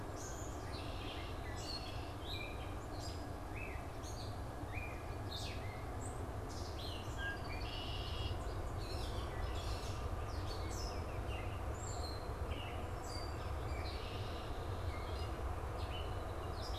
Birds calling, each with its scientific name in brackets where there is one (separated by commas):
Baltimore Oriole (Icterus galbula), Gray Catbird (Dumetella carolinensis), Red-winged Blackbird (Agelaius phoeniceus)